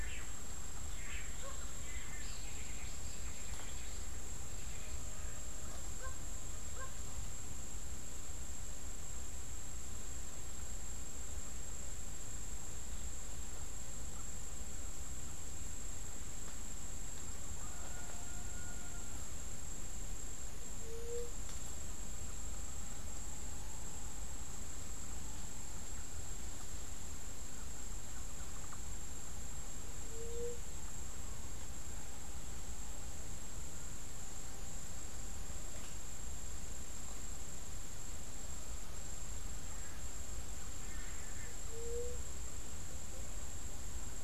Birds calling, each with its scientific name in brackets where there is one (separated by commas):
White-tipped Dove (Leptotila verreauxi), Long-tailed Manakin (Chiroxiphia linearis), Cabanis's Wren (Cantorchilus modestus)